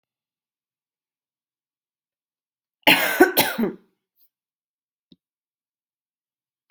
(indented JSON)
{
  "expert_labels": [
    {
      "quality": "good",
      "cough_type": "dry",
      "dyspnea": false,
      "wheezing": false,
      "stridor": false,
      "choking": false,
      "congestion": false,
      "nothing": true,
      "diagnosis": "COVID-19",
      "severity": "mild"
    }
  ],
  "age": 21,
  "gender": "female",
  "respiratory_condition": true,
  "fever_muscle_pain": false,
  "status": "symptomatic"
}